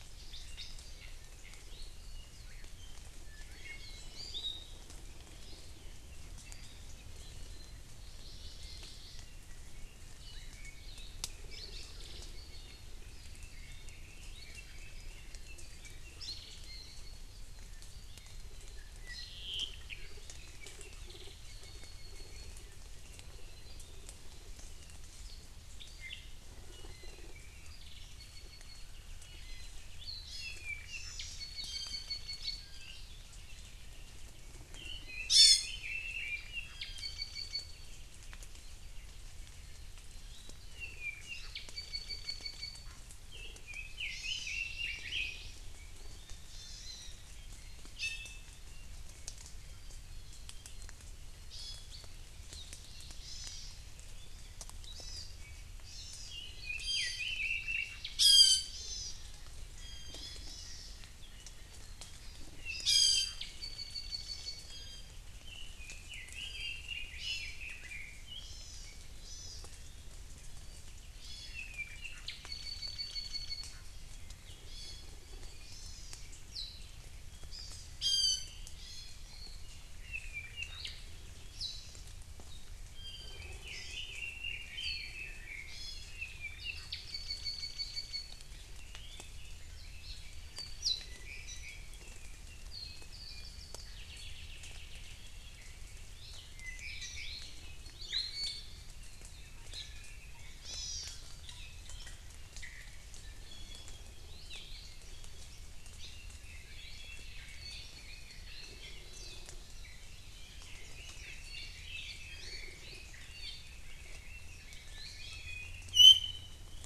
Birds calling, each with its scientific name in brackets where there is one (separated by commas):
Hawaii Creeper (Loxops mana), Iiwi (Drepanis coccinea), Northern Cardinal (Cardinalis cardinalis), Hawaii Amakihi (Chlorodrepanis virens), Apapane (Himatione sanguinea), Warbling White-eye (Zosterops japonicus), Red-billed Leiothrix (Leiothrix lutea), Hawaii Akepa (Loxops coccineus)